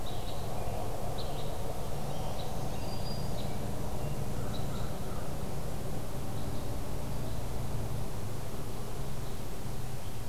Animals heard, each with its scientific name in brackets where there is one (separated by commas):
Black-throated Green Warbler (Setophaga virens), American Crow (Corvus brachyrhynchos), Red Crossbill (Loxia curvirostra)